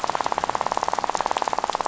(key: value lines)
label: biophony, rattle
recorder: SoundTrap 500